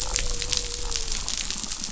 {"label": "biophony", "recorder": "SoundTrap 500"}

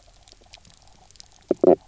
{"label": "biophony, knock croak", "recorder": "SoundTrap 300"}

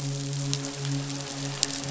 {"label": "biophony, midshipman", "recorder": "SoundTrap 500"}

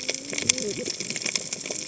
{"label": "biophony, cascading saw", "recorder": "HydroMoth"}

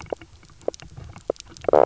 {"label": "biophony, knock croak", "recorder": "SoundTrap 300"}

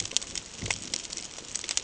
{"label": "ambient", "recorder": "HydroMoth"}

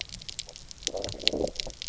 {"label": "biophony, low growl", "recorder": "SoundTrap 300"}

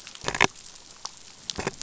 {"label": "biophony", "recorder": "SoundTrap 500"}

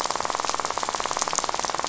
{"label": "biophony, rattle", "recorder": "SoundTrap 500"}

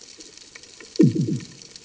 {"label": "anthrophony, bomb", "recorder": "HydroMoth"}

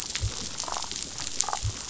{"label": "biophony, damselfish", "recorder": "SoundTrap 500"}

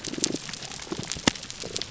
{"label": "biophony, damselfish", "recorder": "SoundTrap 300"}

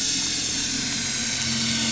{"label": "anthrophony, boat engine", "recorder": "SoundTrap 500"}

